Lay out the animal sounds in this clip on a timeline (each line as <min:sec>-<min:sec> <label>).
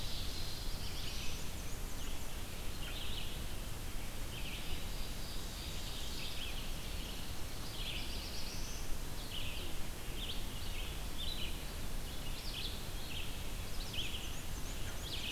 0:00.0-0:00.9 Ovenbird (Seiurus aurocapilla)
0:00.0-0:15.3 Red-eyed Vireo (Vireo olivaceus)
0:00.1-0:01.6 Black-throated Blue Warbler (Setophaga caerulescens)
0:00.7-0:02.5 Black-and-white Warbler (Mniotilta varia)
0:04.2-0:07.7 Ovenbird (Seiurus aurocapilla)
0:07.6-0:09.0 Black-throated Blue Warbler (Setophaga caerulescens)
0:13.7-0:15.3 Black-and-white Warbler (Mniotilta varia)